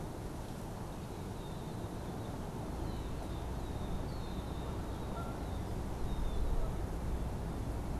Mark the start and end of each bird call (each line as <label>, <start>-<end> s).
Red-winged Blackbird (Agelaius phoeniceus), 0.0-8.0 s
Canada Goose (Branta canadensis), 5.1-5.4 s